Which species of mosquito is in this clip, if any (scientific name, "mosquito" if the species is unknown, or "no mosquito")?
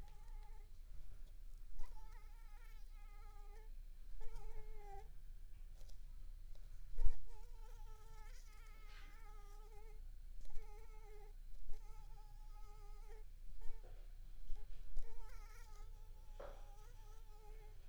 mosquito